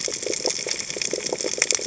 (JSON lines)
{"label": "biophony", "recorder": "HydroMoth"}